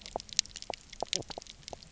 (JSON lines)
{"label": "biophony, knock croak", "recorder": "SoundTrap 300"}